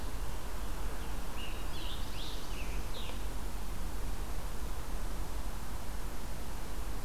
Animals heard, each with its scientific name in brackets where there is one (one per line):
Scarlet Tanager (Piranga olivacea)
Black-throated Blue Warbler (Setophaga caerulescens)